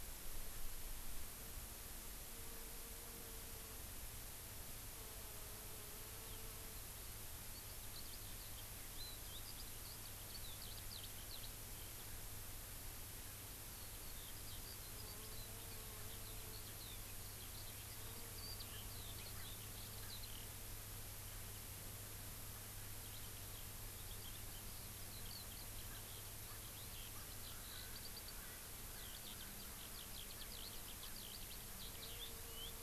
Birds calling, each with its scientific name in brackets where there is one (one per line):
Erckel's Francolin (Pternistis erckelii)
Eurasian Skylark (Alauda arvensis)